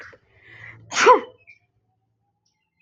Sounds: Sneeze